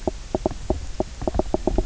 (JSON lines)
{"label": "biophony, knock croak", "recorder": "SoundTrap 300"}